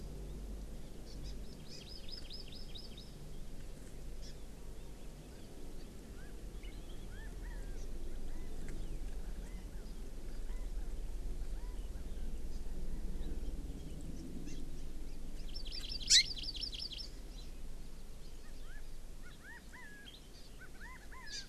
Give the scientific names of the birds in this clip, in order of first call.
Chlorodrepanis virens, Garrulax canorus